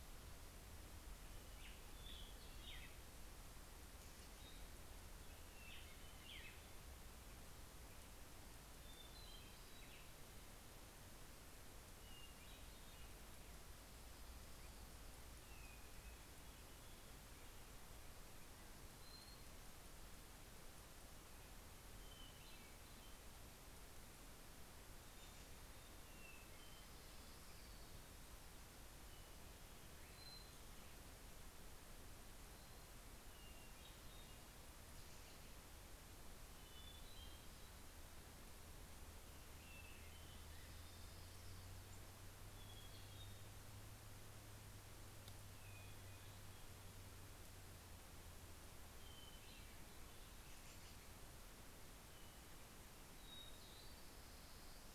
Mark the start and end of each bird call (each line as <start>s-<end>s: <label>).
1.0s-3.6s: Black-headed Grosbeak (Pheucticus melanocephalus)
5.1s-7.3s: Black-headed Grosbeak (Pheucticus melanocephalus)
8.5s-10.9s: Hermit Thrush (Catharus guttatus)
12.1s-13.9s: Hermit Thrush (Catharus guttatus)
15.2s-16.7s: Hermit Thrush (Catharus guttatus)
18.6s-19.9s: Hermit Thrush (Catharus guttatus)
21.6s-23.5s: Hermit Thrush (Catharus guttatus)
25.0s-27.2s: Hermit Thrush (Catharus guttatus)
26.5s-28.4s: Orange-crowned Warbler (Leiothlypis celata)
28.6s-30.7s: Hermit Thrush (Catharus guttatus)
32.9s-34.5s: Hermit Thrush (Catharus guttatus)
36.4s-38.1s: Hermit Thrush (Catharus guttatus)
39.3s-41.5s: Hermit Thrush (Catharus guttatus)
40.0s-42.1s: Orange-crowned Warbler (Leiothlypis celata)
42.3s-43.9s: Hermit Thrush (Catharus guttatus)
45.2s-46.6s: Hermit Thrush (Catharus guttatus)
48.8s-50.3s: Hermit Thrush (Catharus guttatus)
50.1s-51.4s: American Robin (Turdus migratorius)
52.6s-54.9s: Hermit Thrush (Catharus guttatus)